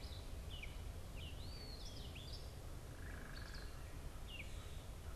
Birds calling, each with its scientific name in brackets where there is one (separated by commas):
Eastern Wood-Pewee (Contopus virens), Gray Catbird (Dumetella carolinensis), unidentified bird